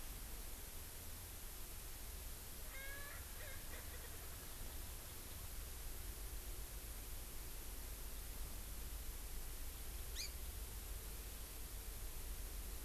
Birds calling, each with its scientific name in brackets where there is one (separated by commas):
Erckel's Francolin (Pternistis erckelii), Hawaii Amakihi (Chlorodrepanis virens)